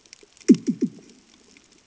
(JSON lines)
{"label": "anthrophony, bomb", "recorder": "HydroMoth"}